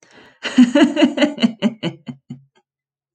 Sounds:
Laughter